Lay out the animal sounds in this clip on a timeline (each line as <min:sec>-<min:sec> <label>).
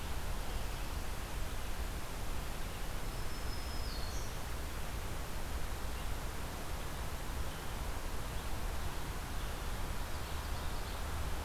0:02.8-0:04.5 Black-throated Green Warbler (Setophaga virens)
0:05.8-0:11.4 Red-eyed Vireo (Vireo olivaceus)